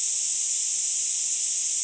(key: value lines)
label: ambient
recorder: HydroMoth